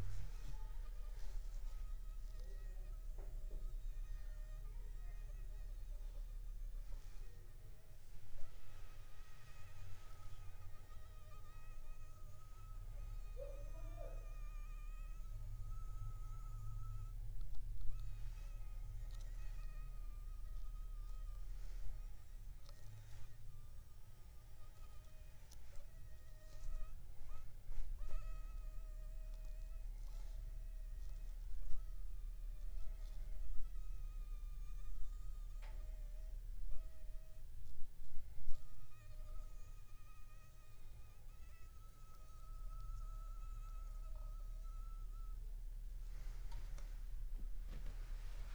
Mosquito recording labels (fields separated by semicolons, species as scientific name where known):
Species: Anopheles funestus s.s.; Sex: female; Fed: unfed; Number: one; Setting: cup